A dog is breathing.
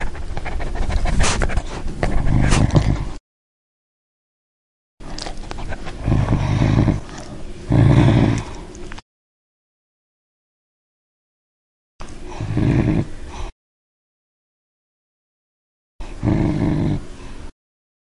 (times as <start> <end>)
12.0 13.5, 16.0 17.5